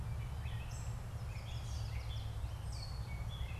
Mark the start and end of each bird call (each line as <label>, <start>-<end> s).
Gray Catbird (Dumetella carolinensis), 0.0-3.6 s
Yellow Warbler (Setophaga petechia), 0.9-2.3 s